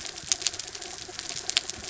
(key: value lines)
label: anthrophony, mechanical
recorder: SoundTrap 300